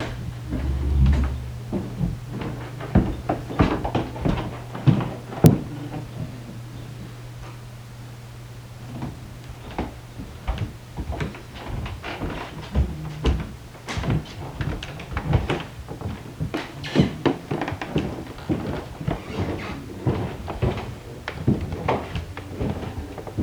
Is this sound inside?
yes